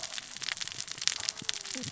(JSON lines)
{"label": "biophony, cascading saw", "recorder": "SoundTrap 600 or HydroMoth"}